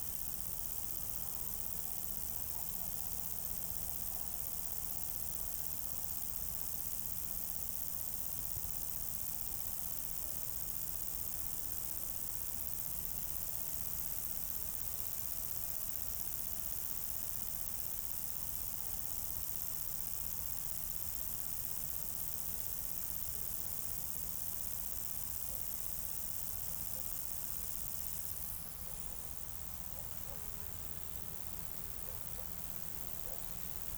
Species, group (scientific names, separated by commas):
Conocephalus dorsalis, Orthoptera